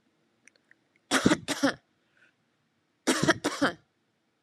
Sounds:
Cough